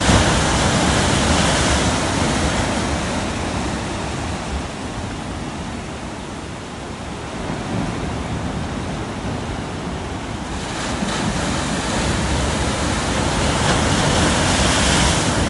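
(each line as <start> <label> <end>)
0.0 Waves hitting the shore. 15.5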